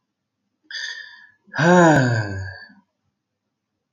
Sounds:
Sigh